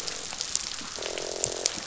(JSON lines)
{"label": "biophony, croak", "recorder": "SoundTrap 500"}